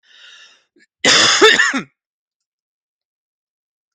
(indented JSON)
{
  "expert_labels": [
    {
      "quality": "good",
      "cough_type": "dry",
      "dyspnea": false,
      "wheezing": false,
      "stridor": false,
      "choking": false,
      "congestion": false,
      "nothing": true,
      "diagnosis": "COVID-19",
      "severity": "mild"
    }
  ],
  "age": 40,
  "gender": "male",
  "respiratory_condition": false,
  "fever_muscle_pain": false,
  "status": "symptomatic"
}